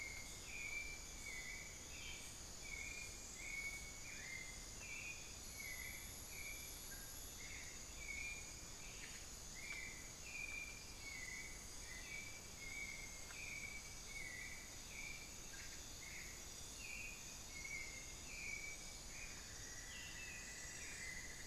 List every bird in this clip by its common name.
White-necked Thrush, unidentified bird, Cinnamon-throated Woodcreeper